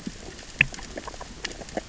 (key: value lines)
label: biophony, grazing
recorder: SoundTrap 600 or HydroMoth